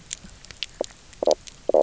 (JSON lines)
{"label": "biophony, knock croak", "recorder": "SoundTrap 300"}